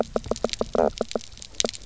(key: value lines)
label: biophony, knock croak
recorder: SoundTrap 300